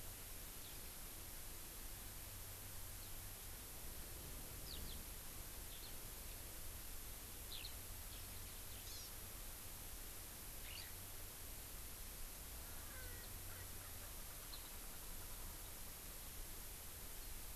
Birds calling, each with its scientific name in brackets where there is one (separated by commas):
Erckel's Francolin (Pternistis erckelii), Eurasian Skylark (Alauda arvensis), Hawaii Amakihi (Chlorodrepanis virens)